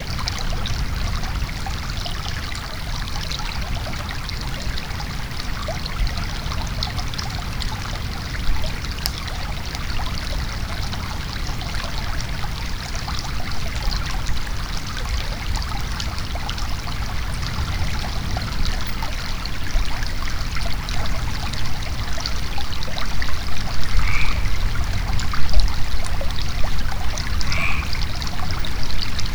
Is there something wet around?
yes